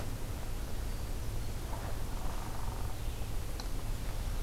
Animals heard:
forest ambience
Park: Acadia National Park